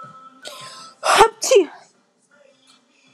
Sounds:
Sneeze